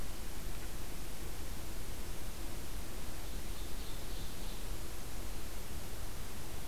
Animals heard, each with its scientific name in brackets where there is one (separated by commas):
Ovenbird (Seiurus aurocapilla)